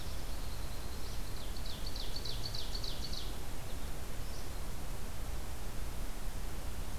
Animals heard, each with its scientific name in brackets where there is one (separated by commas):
Ovenbird (Seiurus aurocapilla), American Goldfinch (Spinus tristis)